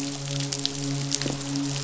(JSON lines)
{"label": "biophony, midshipman", "recorder": "SoundTrap 500"}